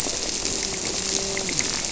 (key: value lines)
label: biophony
recorder: SoundTrap 300

label: biophony, grouper
recorder: SoundTrap 300